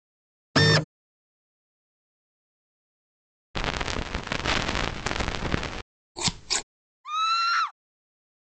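At 0.55 seconds, a printer is heard. Then, at 3.54 seconds, there is crackling. Afterwards, at 6.15 seconds, scissors are audible. Later, at 7.04 seconds, someone screams.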